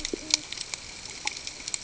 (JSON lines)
{"label": "ambient", "recorder": "HydroMoth"}